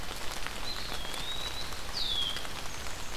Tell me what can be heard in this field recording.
Eastern Wood-Pewee, Red-winged Blackbird